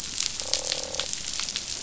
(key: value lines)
label: biophony, croak
recorder: SoundTrap 500